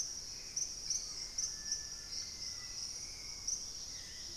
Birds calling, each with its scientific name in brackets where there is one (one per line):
White-throated Toucan (Ramphastos tucanus)
Hauxwell's Thrush (Turdus hauxwelli)
Dusky-capped Greenlet (Pachysylvia hypoxantha)
Black-faced Antthrush (Formicarius analis)